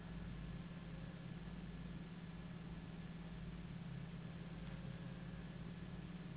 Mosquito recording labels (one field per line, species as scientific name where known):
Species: Anopheles gambiae s.s.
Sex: female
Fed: unfed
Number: one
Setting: insect culture